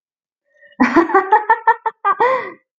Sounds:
Laughter